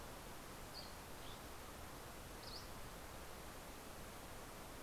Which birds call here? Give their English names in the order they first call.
Dusky Flycatcher